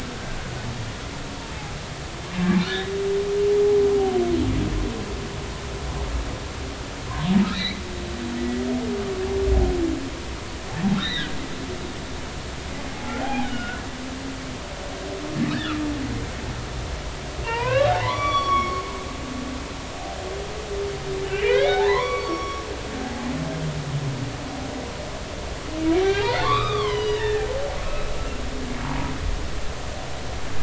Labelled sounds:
1.4	1.7	humpback whale, 0.80 to 0.96 kHz
2.4	2.9	humpback whale, 1.3 to 3.9 kHz
7.5	7.8	humpback whale, 1.7 to 4.4 kHz
10.9	11.4	humpback whale, 1.4 to 4.2 kHz
12.9	13.8	humpback whale, 0.80 to 3.4 kHz
17.4	18.8	humpback whale, 0.86 to 5.8 kHz
21.3	23.3	humpback whale, 0.80 to 5.6 kHz
25.9	27.5	humpback whale, 0.93 to 5.0 kHz
27.8	29.1	humpback whale, 0.80 to 2.7 kHz

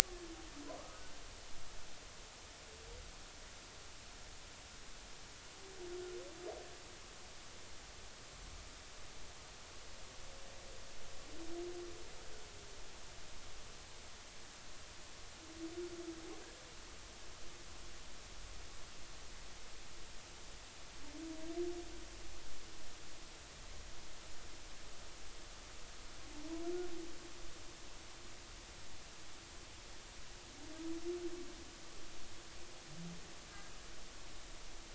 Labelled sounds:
0.9	1.2	humpback whale, 1.4 to 1.6 kHz

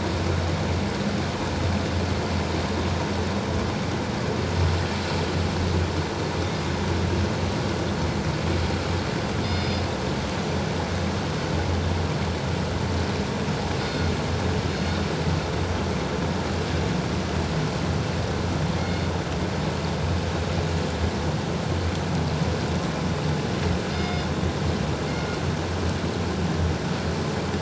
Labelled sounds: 9.4	9.8	killer whale, northern resident, G clan, 3.5 to 5.1 kHz
13.9	14.1	killer whale, northern resident, G clan, 4.3 to 4.4 kHz
23.9	24.3	killer whale, northern resident, G clan, 2.1 to 5.1 kHz

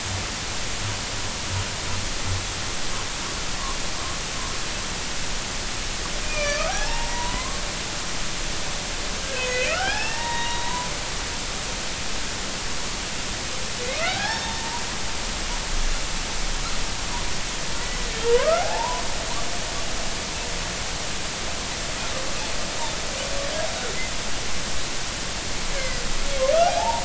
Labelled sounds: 6.2	7.6	humpback whale, 0.80 to 6.1 kHz
9.3	10.9	humpback whale, 0.80 to 5.4 kHz
13.9	14.5	humpback whale, 0.80 to 1.9 kHz
15.4	15.8	humpback whale, 0.83 to 1.0 kHz
18.3	19.0	humpback whale, 0.80 to 1.5 kHz
25.7	26.0	humpback whale, 1.9 to 2.3 kHz
26.7	27.0	humpback whale, 0.80 to 0.99 kHz

